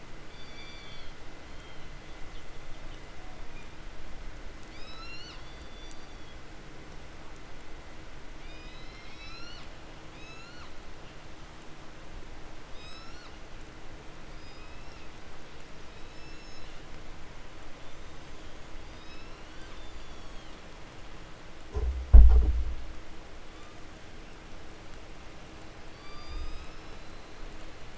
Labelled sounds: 0.2	3.2	killer whale, southern resident, 1.3 to 7.4 kHz
3.5	3.9	killer whale, 1.8 to 5.8 kHz
4.7	5.5	killer whale, 0.68 to 8.0 kHz
5.3	6.4	killer whale, southern resident, call S16, 2.6 to 7.6 kHz
8.3	10.8	killer whale, 0.58 to 8.0 kHz
12.6	13.4	killer whale, 0.46 to 8.0 kHz
14.1	15.3	killer whale, 1.7 to 6.3 kHz
15.7	16.8	killer whale, 2.1 to 8.0 kHz
17.8	20.8	killer whale, 0.75 to 8.0 kHz
23.3	23.9	killer whale, 0.83 to 6.5 kHz
25.6	27.9	killer whale, 0.77 to 8.0 kHz

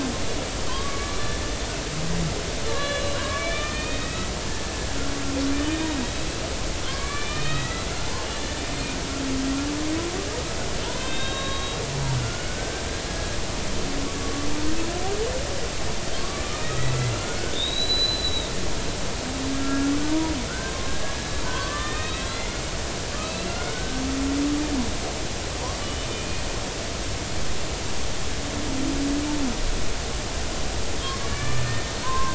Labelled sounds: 0.7	1.3	killer whale, Bigg's (transient), 0.96 to 1.3 kHz
2.7	4.3	killer whale, Bigg's (transient), 0.96 to 4.2 kHz
5.7	6.3	killer whale, Bigg's (transient), 3.6 to 3.9 kHz
6.8	7.8	killer whale, Bigg's (transient), 1.0 to 3.9 kHz
11.0	13.4	killer whale, Bigg's (transient), 1.0 to 3.9 kHz
16.2	16.7	killer whale, Bigg's (transient), 1.0 to 3.8 kHz
17.5	18.5	killer whale, Bigg's (transient), 3.4 to 4.1 kHz
19.6	20.8	killer whale, Bigg's (transient), 1.3 to 1.6 kHz
21.4	22.5	killer whale, Bigg's (transient), 0.90 to 4.2 kHz
23.2	24.0	killer whale, Bigg's (transient), 1.3 to 2.8 kHz
25.8	26.4	killer whale, Bigg's (transient), 2.4 to 3.0 kHz
31.3	32.3	killer whale, Bigg's (transient), 0.90 to 2.4 kHz

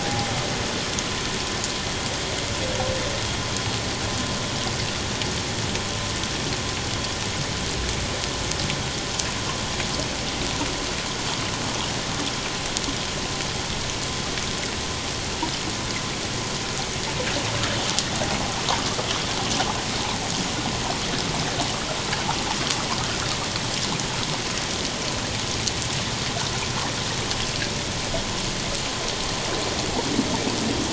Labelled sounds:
0.0	0.3	water noise, 0.78 to 0.88 kHz

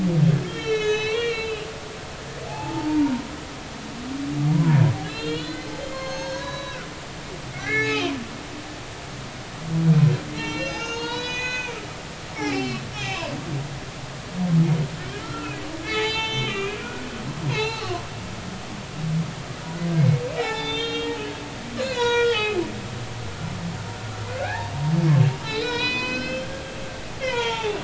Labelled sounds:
0.4	2.1	humpback whale, 1.2 to 6.5 kHz
2.5	3.3	humpback whale, 0.80 to 4.7 kHz
4.5	8.1	humpback whale, 0.90 to 6.6 kHz
10.3	11.8	humpback whale, 0.86 to 6.7 kHz
12.3	13.3	humpback whale, 0.80 to 5.5 kHz
15.2	17.1	humpback whale, 0.83 to 6.3 kHz
17.5	18.0	humpback whale, 0.80 to 4.5 kHz
20.0	22.6	humpback whale, 0.80 to 7.0 kHz
24.4	26.6	humpback whale, 0.80 to 6.1 kHz
27.2	27.8	humpback whale, 0.80 to 3.7 kHz

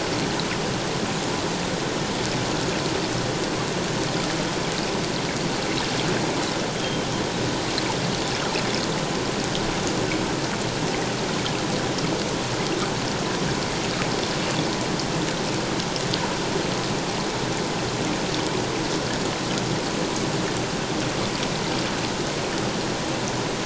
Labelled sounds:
6.8	7.1	Pacific white-sided dolphin, 3.0 to 3.4 kHz

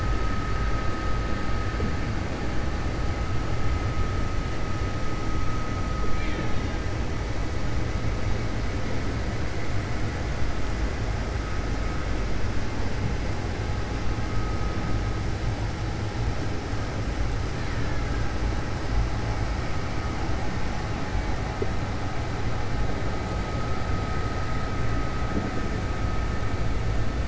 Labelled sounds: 6.1	6.8	killer whale, Bigg's (transient), 0.89 to 4.1 kHz

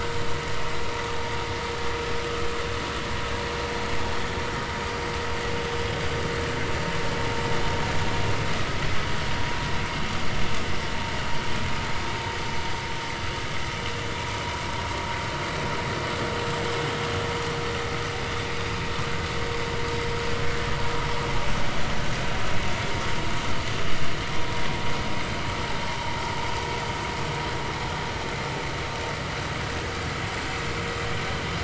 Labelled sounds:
25.9	26.1	vessel noise, 0.80 to 0.99 kHz

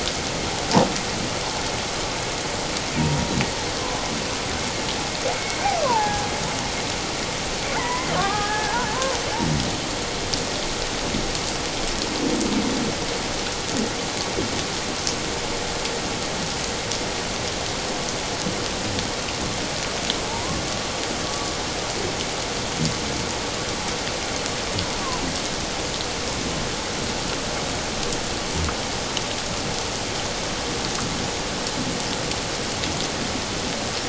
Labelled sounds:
3.8	4.0	killer whale, Bigg's (transient), 0.94 to 1.1 kHz
5.3	6.2	killer whale, Bigg's (transient), 0.78 to 2.3 kHz
7.8	9.2	killer whale, Bigg's (transient), 0.78 to 2.2 kHz
20.3	20.6	killer whale, Bigg's (transient), 0.81 to 1.1 kHz

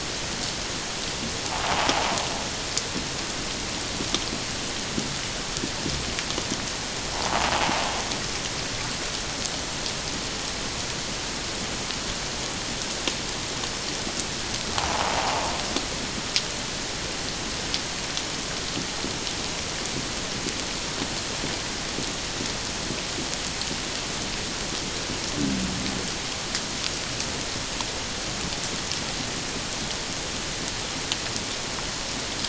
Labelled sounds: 1.6	2.2	invertebrate grinding on or near the hydrophone, 0.78 to 1.1 kHz
7.1	7.4	invertebrate grinding on or near the hydrophone, 0.78 to 1.1 kHz
14.9	15.5	invertebrate grinding on or near the hydrophone, 0.78 to 1.1 kHz

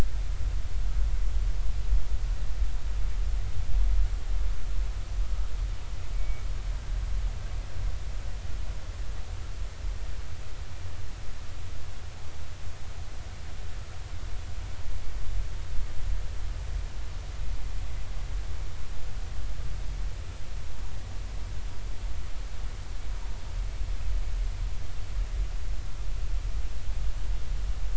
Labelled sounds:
6.1	6.4	humpback whale, 2.2 to 2.4 kHz

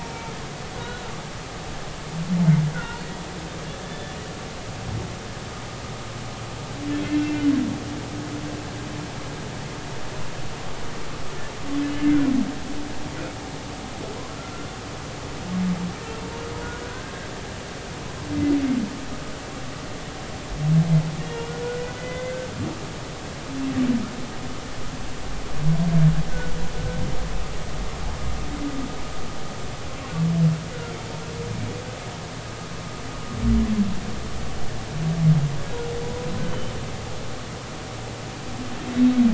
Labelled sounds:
0.0	1.0	humpback whale, 0.86 to 4.0 kHz
2.7	3.0	humpback whale, 1.3 to 1.6 kHz
3.8	4.2	humpback whale, 3.3 to 3.6 kHz
7.1	7.4	humpback whale, 2.6 to 2.7 kHz
21.2	22.5	humpback whale, 1.5 to 2.9 kHz
36.4	36.7	humpback whale, 2.8 to 3.2 kHz

